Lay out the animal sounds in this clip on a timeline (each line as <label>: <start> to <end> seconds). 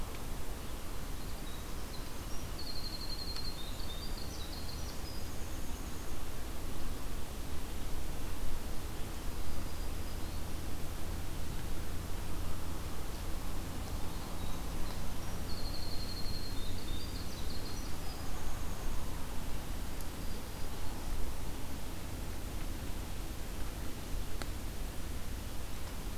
Winter Wren (Troglodytes hiemalis): 0.9 to 6.2 seconds
Black-throated Green Warbler (Setophaga virens): 9.3 to 10.5 seconds
Winter Wren (Troglodytes hiemalis): 14.1 to 19.1 seconds
Black-throated Green Warbler (Setophaga virens): 19.6 to 21.2 seconds